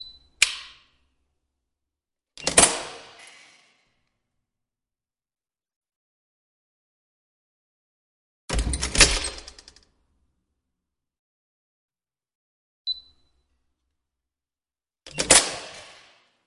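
0.2s A metallic click is heard indoors. 0.6s
2.3s Metallic sound of a door being unlocked indoors. 3.0s
8.5s A heavy door closes indoors. 9.4s
12.8s A muffled security lock beep sounds. 13.0s
15.1s A door is locked with a metallic lock. 15.7s

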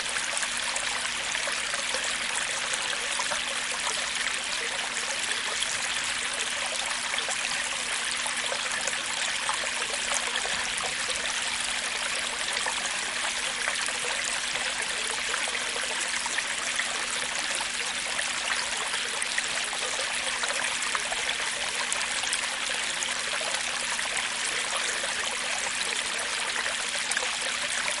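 0.0s A water stream flows softly and irregularly. 28.0s

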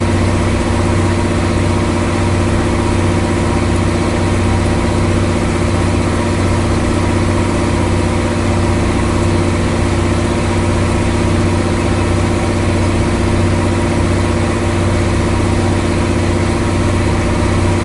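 0.0s A boat engine revs continuously with a persistent, loud mechanical roar. 17.8s

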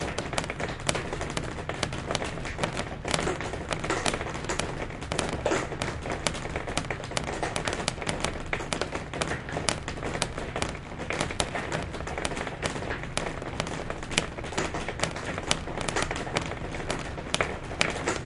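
0.0s Rain and water droplets falling irregularly on several surfaces. 18.2s

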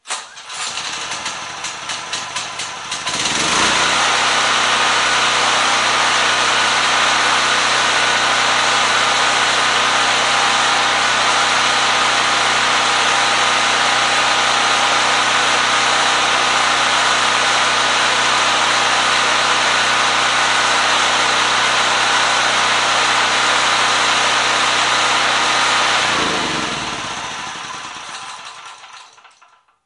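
0.0s An engine starts. 3.1s
3.0s An engine is running. 26.2s
26.1s An engine shuts off. 29.9s

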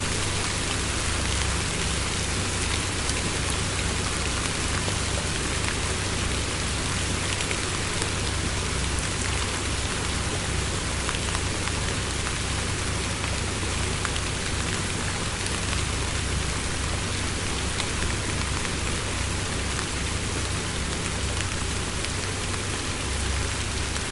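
0.0s Ambient sound of rain showering. 24.1s

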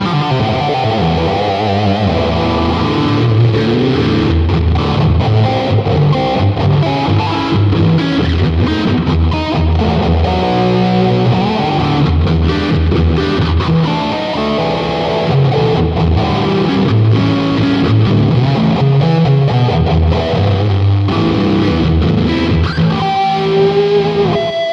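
0.0s A guitar is playing a solo jam with a rhythmic pattern. 24.7s

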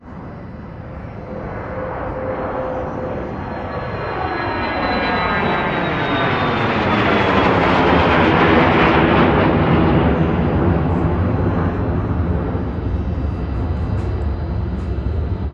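0.0s A plane takes off nearby, loud and intense. 15.5s

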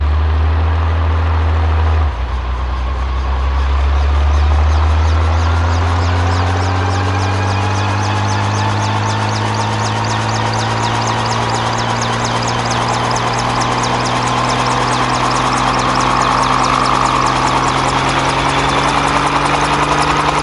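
0.0s A helicopter engine running on the ground. 2.1s
2.1s Helicopter engine starts with rotor blades whirring increasingly. 20.4s

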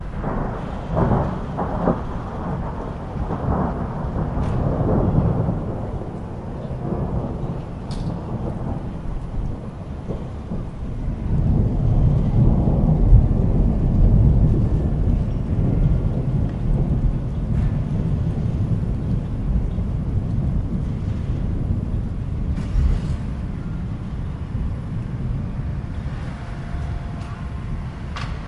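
0.0s Rolling thunder rumbling outdoors. 28.5s

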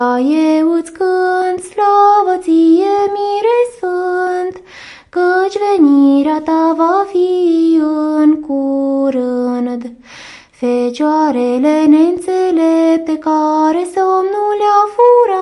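0.0s A woman sings indoors with a bright voice and slight reverb. 15.4s

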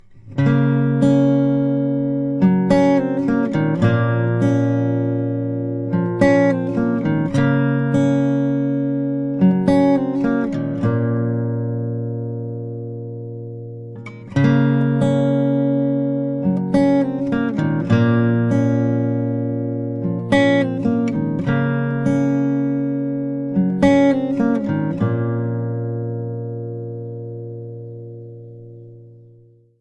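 0.0s A melodic, melancholic acoustic guitar tune is played indoors. 29.5s

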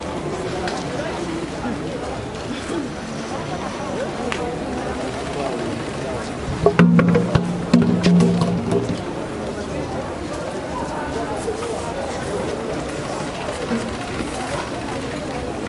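0.0s Many people are talking indistinctly in a street market. 15.7s
0.6s Footsteps on a street. 0.8s
4.6s A sewing machine is running in a street market. 6.1s
6.6s African percussion instruments are playing. 8.9s
12.8s A sewing machine is running in a street market. 15.3s

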